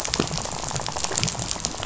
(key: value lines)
label: biophony, rattle
recorder: SoundTrap 500